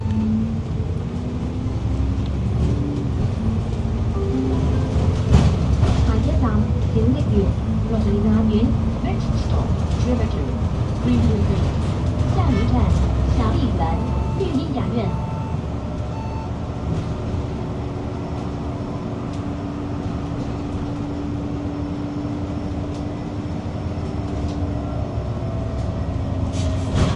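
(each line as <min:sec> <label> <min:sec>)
0:00.0 Multiple vehicles can be heard in the background. 0:27.1
0:04.5 A muffled train announcement is heard. 0:15.5
0:05.2 A train bumping. 0:05.7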